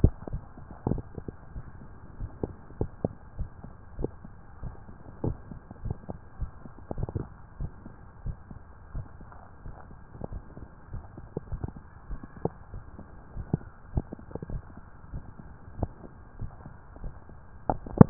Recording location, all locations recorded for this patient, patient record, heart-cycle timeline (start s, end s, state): tricuspid valve (TV)
aortic valve (AV)+pulmonary valve (PV)+tricuspid valve (TV)+mitral valve (MV)
#Age: Adolescent
#Sex: Male
#Height: 166.0 cm
#Weight: 71.3 kg
#Pregnancy status: False
#Murmur: Absent
#Murmur locations: nan
#Most audible location: nan
#Systolic murmur timing: nan
#Systolic murmur shape: nan
#Systolic murmur grading: nan
#Systolic murmur pitch: nan
#Systolic murmur quality: nan
#Diastolic murmur timing: nan
#Diastolic murmur shape: nan
#Diastolic murmur grading: nan
#Diastolic murmur pitch: nan
#Diastolic murmur quality: nan
#Outcome: Normal
#Campaign: 2015 screening campaign
0.00	3.36	unannotated
3.36	3.50	S1
3.50	3.61	systole
3.61	3.72	S2
3.72	3.96	diastole
3.96	4.12	S1
4.12	4.23	systole
4.23	4.38	S2
4.38	4.62	diastole
4.62	4.76	S1
4.76	4.86	systole
4.86	4.96	S2
4.96	5.22	diastole
5.22	5.38	S1
5.38	5.48	systole
5.48	5.58	S2
5.58	5.82	diastole
5.82	5.98	S1
5.98	6.07	systole
6.07	6.20	S2
6.20	6.38	diastole
6.38	6.52	S1
6.52	6.63	systole
6.63	6.73	S2
6.73	6.96	diastole
6.96	7.10	S1
7.10	7.16	systole
7.16	7.30	S2
7.30	7.58	diastole
7.58	7.71	S1
7.71	7.85	systole
7.85	7.95	S2
7.95	8.24	diastole
8.24	8.38	S1
8.38	8.51	systole
8.51	8.66	S2
8.66	8.92	diastole
8.92	9.06	S1
9.06	9.19	systole
9.19	9.33	S2
9.33	9.61	diastole
9.61	9.76	S1
9.76	18.10	unannotated